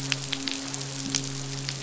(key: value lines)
label: biophony, midshipman
recorder: SoundTrap 500